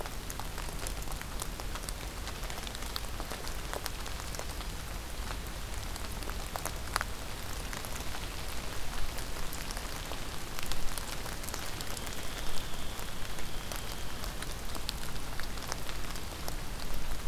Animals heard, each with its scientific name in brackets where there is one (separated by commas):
Hairy Woodpecker (Dryobates villosus)